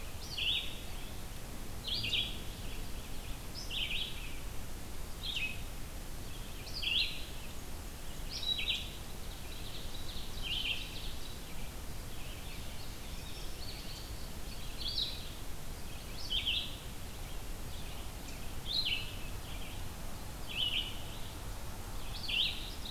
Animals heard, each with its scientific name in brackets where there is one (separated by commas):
Ovenbird (Seiurus aurocapilla), Indigo Bunting (Passerina cyanea), Red-eyed Vireo (Vireo olivaceus)